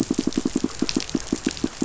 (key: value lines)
label: biophony, pulse
recorder: SoundTrap 500